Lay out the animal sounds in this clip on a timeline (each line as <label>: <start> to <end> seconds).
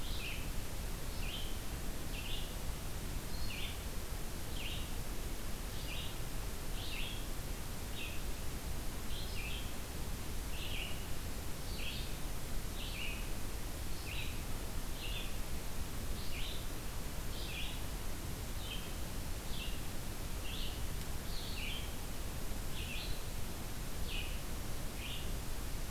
Red-eyed Vireo (Vireo olivaceus): 0.0 to 15.4 seconds
Red-eyed Vireo (Vireo olivaceus): 15.9 to 25.9 seconds